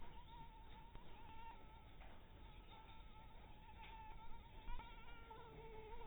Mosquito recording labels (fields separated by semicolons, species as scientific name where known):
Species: Anopheles dirus; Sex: female; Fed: unfed; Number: one; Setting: cup